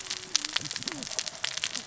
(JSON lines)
{"label": "biophony, cascading saw", "recorder": "SoundTrap 600 or HydroMoth"}